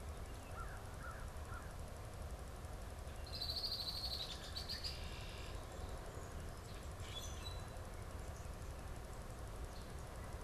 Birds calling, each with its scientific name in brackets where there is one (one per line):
Red-winged Blackbird (Agelaius phoeniceus)
American Crow (Corvus brachyrhynchos)
Common Grackle (Quiscalus quiscula)